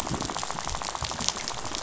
{"label": "biophony, rattle", "recorder": "SoundTrap 500"}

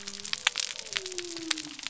{"label": "biophony", "recorder": "SoundTrap 300"}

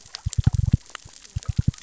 {"label": "biophony, knock", "recorder": "SoundTrap 600 or HydroMoth"}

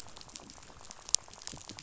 {"label": "biophony, rattle", "recorder": "SoundTrap 500"}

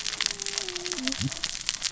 {"label": "biophony, cascading saw", "recorder": "SoundTrap 600 or HydroMoth"}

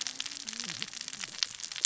{"label": "biophony, cascading saw", "recorder": "SoundTrap 600 or HydroMoth"}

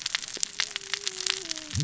{"label": "biophony, cascading saw", "recorder": "SoundTrap 600 or HydroMoth"}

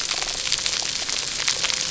{"label": "biophony", "recorder": "SoundTrap 300"}
{"label": "anthrophony, boat engine", "recorder": "SoundTrap 300"}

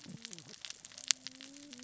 {"label": "biophony, cascading saw", "recorder": "SoundTrap 600 or HydroMoth"}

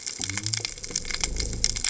{"label": "biophony", "recorder": "HydroMoth"}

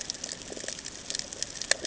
{"label": "ambient", "recorder": "HydroMoth"}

